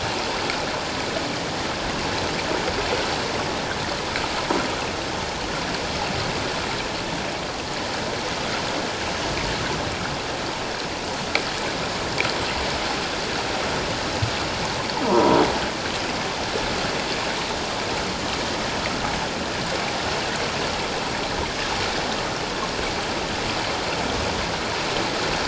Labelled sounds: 15.0	15.4	croaking sound likely from a nearby submerged object, 0.91 to 1.1 kHz

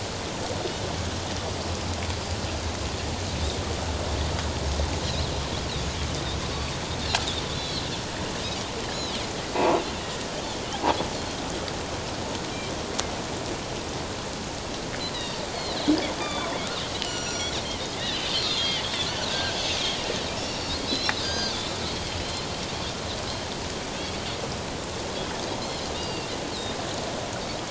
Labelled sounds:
7.5	7.8	Pacific white-sided dolphin, 3.2 to 4.5 kHz
10.0	10.3	Pacific white-sided dolphin, 1.8 to 1.9 kHz
15.1	15.4	Pacific white-sided dolphin, 2.7 to 5.0 kHz
16.2	17.5	Pacific white-sided dolphin, 0.97 to 7.3 kHz
18.0	18.8	Pacific white-sided dolphin, 2.6 to 4.9 kHz
19.3	21.6	Pacific white-sided dolphin, 1.4 to 5.6 kHz
22.1	22.5	Pacific white-sided dolphin, 2.9 to 4.3 kHz
25.6	26.3	Pacific white-sided dolphin, 2.6 to 5.3 kHz

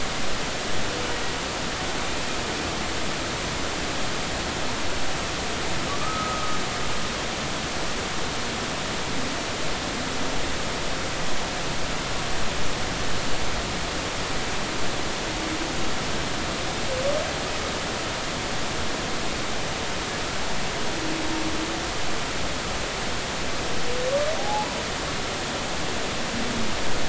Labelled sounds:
5.9	6.6	humpback whale, 1.1 to 1.3 kHz
24.4	24.7	humpback whale, 0.80 to 0.90 kHz

